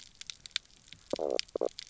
{"label": "biophony, knock croak", "recorder": "SoundTrap 300"}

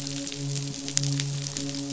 {"label": "biophony, midshipman", "recorder": "SoundTrap 500"}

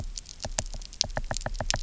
{"label": "biophony, knock", "recorder": "SoundTrap 300"}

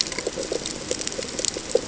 {"label": "ambient", "recorder": "HydroMoth"}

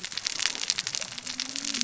{"label": "biophony, cascading saw", "recorder": "SoundTrap 600 or HydroMoth"}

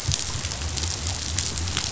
{"label": "biophony", "recorder": "SoundTrap 500"}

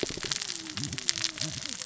{"label": "biophony, cascading saw", "recorder": "SoundTrap 600 or HydroMoth"}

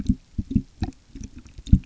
{"label": "geophony, waves", "recorder": "SoundTrap 300"}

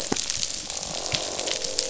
{"label": "biophony, croak", "recorder": "SoundTrap 500"}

